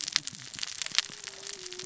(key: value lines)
label: biophony, cascading saw
recorder: SoundTrap 600 or HydroMoth